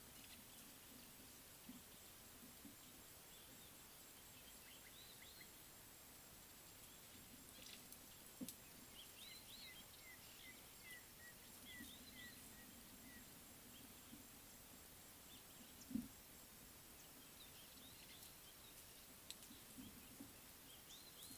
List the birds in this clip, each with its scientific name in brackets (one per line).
African Gray Hornbill (Lophoceros nasutus)
Red-backed Scrub-Robin (Cercotrichas leucophrys)